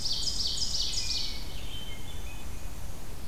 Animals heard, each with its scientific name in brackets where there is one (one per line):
Hermit Thrush (Catharus guttatus)
Black-and-white Warbler (Mniotilta varia)
Red-eyed Vireo (Vireo olivaceus)
Ovenbird (Seiurus aurocapilla)